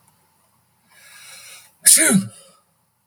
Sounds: Sneeze